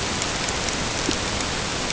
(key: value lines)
label: ambient
recorder: HydroMoth